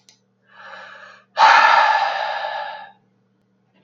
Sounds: Sigh